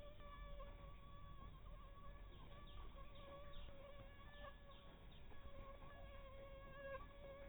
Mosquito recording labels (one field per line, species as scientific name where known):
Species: Anopheles dirus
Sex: female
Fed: unfed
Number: one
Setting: cup